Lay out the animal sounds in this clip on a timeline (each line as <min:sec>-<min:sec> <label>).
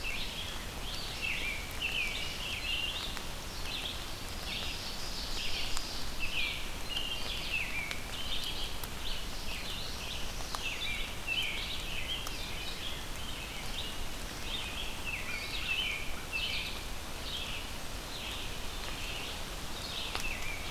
0:00.0-0:20.7 Red-eyed Vireo (Vireo olivaceus)
0:01.0-0:03.3 American Robin (Turdus migratorius)
0:04.0-0:06.0 Ovenbird (Seiurus aurocapilla)
0:06.1-0:08.6 American Robin (Turdus migratorius)
0:09.6-0:10.9 Black-throated Blue Warbler (Setophaga caerulescens)
0:10.7-0:12.9 American Robin (Turdus migratorius)
0:14.8-0:16.8 American Robin (Turdus migratorius)
0:20.1-0:20.7 American Robin (Turdus migratorius)